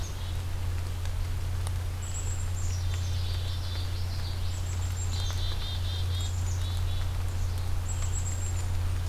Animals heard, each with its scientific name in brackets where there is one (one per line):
Common Yellowthroat (Geothlypis trichas)
Black-capped Chickadee (Poecile atricapillus)